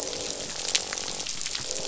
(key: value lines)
label: biophony, croak
recorder: SoundTrap 500